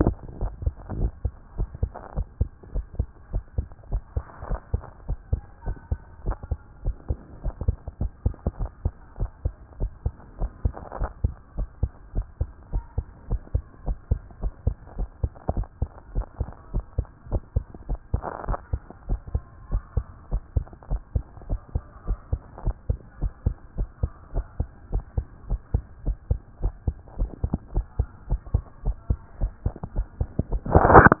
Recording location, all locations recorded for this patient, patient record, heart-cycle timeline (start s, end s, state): tricuspid valve (TV)
aortic valve (AV)+pulmonary valve (PV)+tricuspid valve (TV)+mitral valve (MV)
#Age: Child
#Sex: Female
#Height: 120.0 cm
#Weight: 20.0 kg
#Pregnancy status: False
#Murmur: Absent
#Murmur locations: nan
#Most audible location: nan
#Systolic murmur timing: nan
#Systolic murmur shape: nan
#Systolic murmur grading: nan
#Systolic murmur pitch: nan
#Systolic murmur quality: nan
#Diastolic murmur timing: nan
#Diastolic murmur shape: nan
#Diastolic murmur grading: nan
#Diastolic murmur pitch: nan
#Diastolic murmur quality: nan
#Outcome: Abnormal
#Campaign: 2014 screening campaign
0.00	0.30	unannotated
0.30	0.40	diastole
0.40	0.52	S1
0.52	0.64	systole
0.64	0.74	S2
0.74	0.96	diastole
0.96	1.12	S1
1.12	1.24	systole
1.24	1.32	S2
1.32	1.58	diastole
1.58	1.68	S1
1.68	1.82	systole
1.82	1.90	S2
1.90	2.16	diastole
2.16	2.26	S1
2.26	2.40	systole
2.40	2.48	S2
2.48	2.74	diastole
2.74	2.86	S1
2.86	2.98	systole
2.98	3.08	S2
3.08	3.32	diastole
3.32	3.44	S1
3.44	3.56	systole
3.56	3.66	S2
3.66	3.90	diastole
3.90	4.02	S1
4.02	4.16	systole
4.16	4.24	S2
4.24	4.48	diastole
4.48	4.60	S1
4.60	4.72	systole
4.72	4.82	S2
4.82	5.08	diastole
5.08	5.18	S1
5.18	5.32	systole
5.32	5.42	S2
5.42	5.66	diastole
5.66	5.76	S1
5.76	5.90	systole
5.90	6.00	S2
6.00	6.26	diastole
6.26	6.36	S1
6.36	6.50	systole
6.50	6.58	S2
6.58	6.84	diastole
6.84	6.96	S1
6.96	7.08	systole
7.08	7.18	S2
7.18	7.44	diastole
7.44	7.54	S1
7.54	7.66	systole
7.66	7.76	S2
7.76	8.00	diastole
8.00	8.10	S1
8.10	8.24	systole
8.24	8.34	S2
8.34	8.60	diastole
8.60	8.70	S1
8.70	8.84	systole
8.84	8.92	S2
8.92	9.18	diastole
9.18	9.30	S1
9.30	9.44	systole
9.44	9.54	S2
9.54	9.80	diastole
9.80	9.92	S1
9.92	10.04	systole
10.04	10.14	S2
10.14	10.40	diastole
10.40	10.50	S1
10.50	10.64	systole
10.64	10.74	S2
10.74	10.98	diastole
10.98	11.10	S1
11.10	11.22	systole
11.22	11.34	S2
11.34	11.58	diastole
11.58	11.68	S1
11.68	11.82	systole
11.82	11.90	S2
11.90	12.14	diastole
12.14	12.26	S1
12.26	12.40	systole
12.40	12.48	S2
12.48	12.72	diastole
12.72	12.84	S1
12.84	12.96	systole
12.96	13.06	S2
13.06	13.30	diastole
13.30	13.40	S1
13.40	13.54	systole
13.54	13.62	S2
13.62	13.86	diastole
13.86	13.98	S1
13.98	14.10	systole
14.10	14.20	S2
14.20	14.42	diastole
14.42	14.52	S1
14.52	14.66	systole
14.66	14.76	S2
14.76	14.98	diastole
14.98	15.08	S1
15.08	15.22	systole
15.22	15.32	S2
15.32	15.54	diastole
15.54	15.66	S1
15.66	15.80	systole
15.80	15.90	S2
15.90	16.14	diastole
16.14	16.26	S1
16.26	16.40	systole
16.40	16.48	S2
16.48	16.72	diastole
16.72	16.84	S1
16.84	16.96	systole
16.96	17.06	S2
17.06	17.30	diastole
17.30	17.42	S1
17.42	17.54	systole
17.54	17.64	S2
17.64	17.88	diastole
17.88	18.00	S1
18.00	18.12	systole
18.12	18.22	S2
18.22	18.46	diastole
18.46	18.58	S1
18.58	18.72	systole
18.72	18.80	S2
18.80	19.08	diastole
19.08	19.20	S1
19.20	19.34	systole
19.34	19.42	S2
19.42	19.72	diastole
19.72	19.82	S1
19.82	19.96	systole
19.96	20.04	S2
20.04	20.32	diastole
20.32	20.42	S1
20.42	20.54	systole
20.54	20.64	S2
20.64	20.90	diastole
20.90	21.02	S1
21.02	21.14	systole
21.14	21.24	S2
21.24	21.48	diastole
21.48	21.60	S1
21.60	21.74	systole
21.74	21.82	S2
21.82	22.06	diastole
22.06	22.18	S1
22.18	22.32	systole
22.32	22.40	S2
22.40	22.64	diastole
22.64	22.76	S1
22.76	22.88	systole
22.88	22.98	S2
22.98	23.20	diastole
23.20	23.32	S1
23.32	23.44	systole
23.44	23.56	S2
23.56	23.78	diastole
23.78	23.88	S1
23.88	24.02	systole
24.02	24.10	S2
24.10	24.34	diastole
24.34	24.46	S1
24.46	24.58	systole
24.58	24.68	S2
24.68	24.92	diastole
24.92	25.04	S1
25.04	25.16	systole
25.16	25.26	S2
25.26	25.48	diastole
25.48	25.60	S1
25.60	25.72	systole
25.72	25.82	S2
25.82	26.06	diastole
26.06	26.16	S1
26.16	26.30	systole
26.30	26.40	S2
26.40	26.62	diastole
26.62	26.74	S1
26.74	26.86	systole
26.86	26.96	S2
26.96	27.18	diastole
27.18	27.30	S1
27.30	27.44	systole
27.44	27.52	S2
27.52	27.74	diastole
27.74	27.86	S1
27.86	27.98	systole
27.98	28.08	S2
28.08	28.30	diastole
28.30	28.40	S1
28.40	28.52	systole
28.52	28.62	S2
28.62	28.84	diastole
28.84	28.96	S1
28.96	29.08	systole
29.08	29.18	S2
29.18	29.40	diastole
29.40	31.20	unannotated